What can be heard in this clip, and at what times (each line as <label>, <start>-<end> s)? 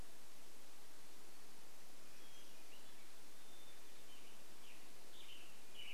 Hermit Thrush song, 2-4 s
Western Tanager song, 4-6 s